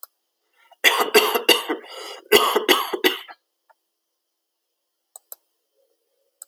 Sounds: Cough